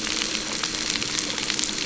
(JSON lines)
{"label": "anthrophony, boat engine", "recorder": "SoundTrap 300"}